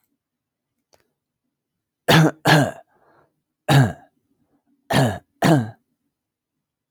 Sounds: Cough